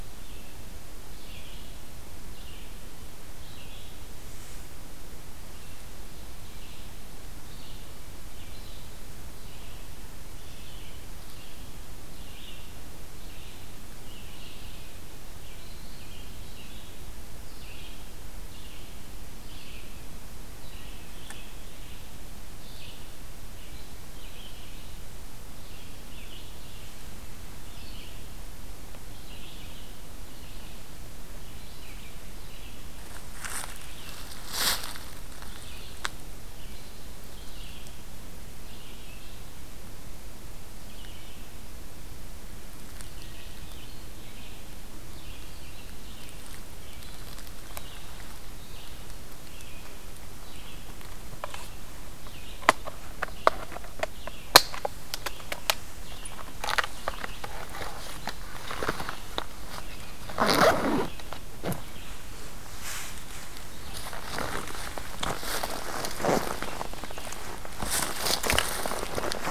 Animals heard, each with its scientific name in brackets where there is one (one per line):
American Robin (Turdus migratorius)
Red-eyed Vireo (Vireo olivaceus)